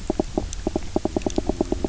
{"label": "biophony, knock croak", "recorder": "SoundTrap 300"}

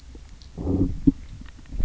{"label": "biophony, low growl", "recorder": "SoundTrap 300"}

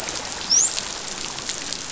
{"label": "biophony, dolphin", "recorder": "SoundTrap 500"}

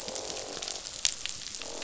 {"label": "biophony, croak", "recorder": "SoundTrap 500"}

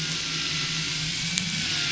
{"label": "anthrophony, boat engine", "recorder": "SoundTrap 500"}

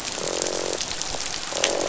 {"label": "biophony, croak", "recorder": "SoundTrap 500"}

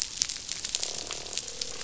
{"label": "biophony, croak", "recorder": "SoundTrap 500"}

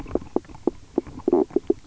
{"label": "biophony, knock croak", "recorder": "SoundTrap 300"}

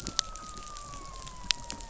{"label": "biophony", "recorder": "SoundTrap 500"}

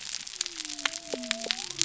{"label": "biophony", "recorder": "SoundTrap 300"}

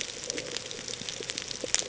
{"label": "ambient", "recorder": "HydroMoth"}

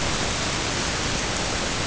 {"label": "ambient", "recorder": "HydroMoth"}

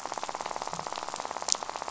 {"label": "biophony, rattle", "recorder": "SoundTrap 500"}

